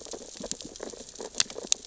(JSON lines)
{"label": "biophony, sea urchins (Echinidae)", "recorder": "SoundTrap 600 or HydroMoth"}